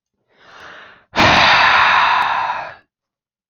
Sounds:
Sigh